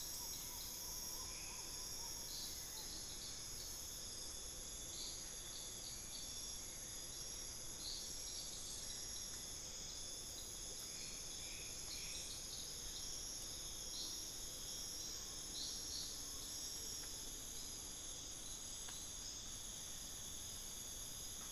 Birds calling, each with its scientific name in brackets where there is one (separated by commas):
Hauxwell's Thrush (Turdus hauxwelli), Collared Forest-Falcon (Micrastur semitorquatus), unidentified bird